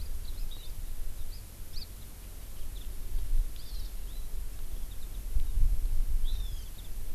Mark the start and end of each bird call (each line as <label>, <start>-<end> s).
Hawaii Amakihi (Chlorodrepanis virens), 1.7-1.8 s
Hawaii Amakihi (Chlorodrepanis virens), 3.6-3.9 s
Hawaii Amakihi (Chlorodrepanis virens), 6.2-6.6 s